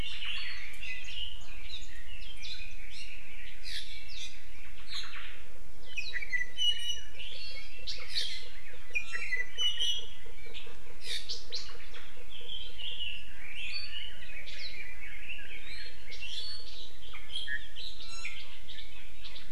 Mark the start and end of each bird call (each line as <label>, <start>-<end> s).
Omao (Myadestes obscurus), 0.0-0.6 s
Red-billed Leiothrix (Leiothrix lutea), 0.8-4.7 s
Omao (Myadestes obscurus), 4.6-5.4 s
Iiwi (Drepanis coccinea), 5.8-7.9 s
Iiwi (Drepanis coccinea), 8.9-10.2 s
Omao (Myadestes obscurus), 11.6-12.1 s
Red-billed Leiothrix (Leiothrix lutea), 12.2-16.0 s
Iiwi (Drepanis coccinea), 18.0-18.4 s